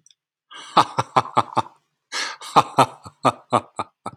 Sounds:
Laughter